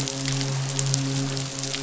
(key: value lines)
label: biophony, midshipman
recorder: SoundTrap 500